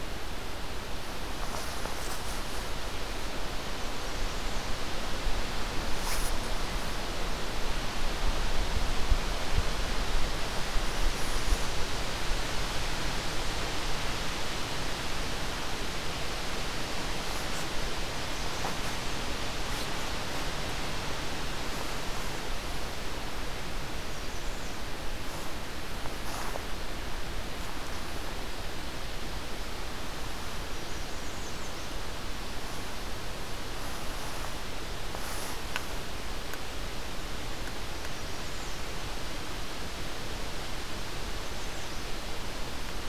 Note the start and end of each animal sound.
[3.63, 4.79] American Redstart (Setophaga ruticilla)
[23.39, 25.06] American Redstart (Setophaga ruticilla)
[30.30, 32.26] American Redstart (Setophaga ruticilla)
[38.17, 38.98] American Redstart (Setophaga ruticilla)
[41.15, 42.10] American Redstart (Setophaga ruticilla)

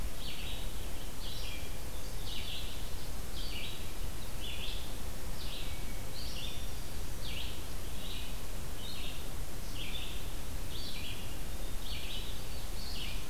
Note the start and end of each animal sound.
[0.00, 13.30] Red-eyed Vireo (Vireo olivaceus)
[5.47, 6.47] Hermit Thrush (Catharus guttatus)
[6.10, 7.34] Black-throated Green Warbler (Setophaga virens)

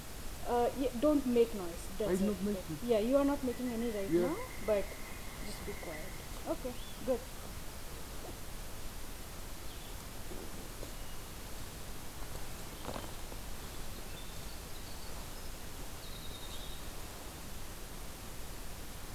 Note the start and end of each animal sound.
[3.43, 6.46] Pileated Woodpecker (Dryocopus pileatus)
[6.57, 7.18] Eastern Wood-Pewee (Contopus virens)
[9.80, 16.94] Winter Wren (Troglodytes hiemalis)

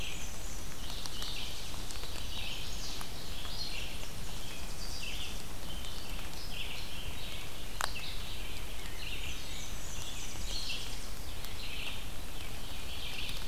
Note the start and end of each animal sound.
[0.00, 0.74] Black-and-white Warbler (Mniotilta varia)
[0.00, 13.43] Red-eyed Vireo (Vireo olivaceus)
[0.52, 2.04] Tennessee Warbler (Leiothlypis peregrina)
[2.21, 3.03] Chestnut-sided Warbler (Setophaga pensylvanica)
[3.42, 5.54] Tennessee Warbler (Leiothlypis peregrina)
[9.06, 10.68] Black-and-white Warbler (Mniotilta varia)
[9.35, 11.18] Tennessee Warbler (Leiothlypis peregrina)

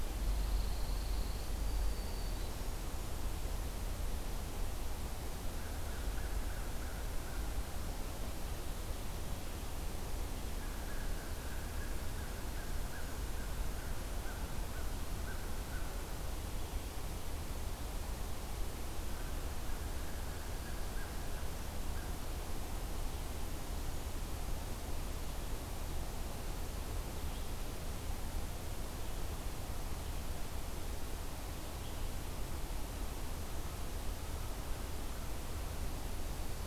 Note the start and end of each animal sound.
[0.00, 1.69] Pine Warbler (Setophaga pinus)
[1.48, 2.93] Black-throated Green Warbler (Setophaga virens)
[5.40, 7.72] American Crow (Corvus brachyrhynchos)
[10.42, 15.98] American Crow (Corvus brachyrhynchos)
[19.37, 22.16] American Crow (Corvus brachyrhynchos)

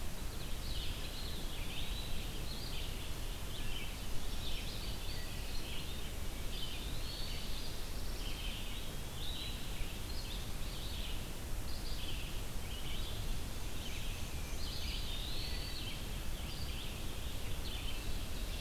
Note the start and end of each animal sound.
[0.22, 18.61] Red-eyed Vireo (Vireo olivaceus)
[0.91, 2.33] Eastern Wood-Pewee (Contopus virens)
[4.18, 5.30] Wood Thrush (Hylocichla mustelina)
[6.46, 7.46] Eastern Wood-Pewee (Contopus virens)
[7.11, 8.36] Black-throated Blue Warbler (Setophaga caerulescens)
[8.58, 9.76] Eastern Wood-Pewee (Contopus virens)
[14.56, 15.79] Eastern Wood-Pewee (Contopus virens)

